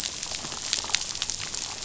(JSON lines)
{"label": "biophony, damselfish", "recorder": "SoundTrap 500"}